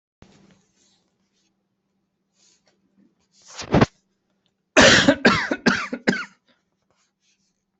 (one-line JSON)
{"expert_labels": [{"quality": "good", "cough_type": "unknown", "dyspnea": false, "wheezing": false, "stridor": false, "choking": false, "congestion": false, "nothing": true, "diagnosis": "upper respiratory tract infection", "severity": "mild"}], "age": 34, "gender": "male", "respiratory_condition": false, "fever_muscle_pain": false, "status": "healthy"}